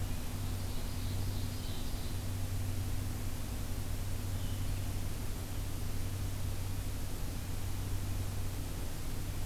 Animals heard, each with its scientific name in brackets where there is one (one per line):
Ovenbird (Seiurus aurocapilla)
Blue-headed Vireo (Vireo solitarius)